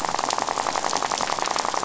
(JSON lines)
{"label": "biophony, rattle", "recorder": "SoundTrap 500"}